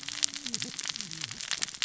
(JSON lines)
{"label": "biophony, cascading saw", "recorder": "SoundTrap 600 or HydroMoth"}